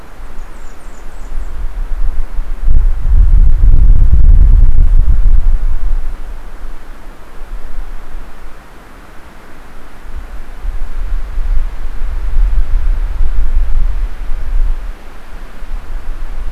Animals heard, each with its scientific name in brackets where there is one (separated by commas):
Blackburnian Warbler (Setophaga fusca)